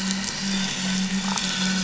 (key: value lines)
label: biophony, damselfish
recorder: SoundTrap 500

label: anthrophony, boat engine
recorder: SoundTrap 500